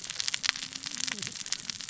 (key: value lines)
label: biophony, cascading saw
recorder: SoundTrap 600 or HydroMoth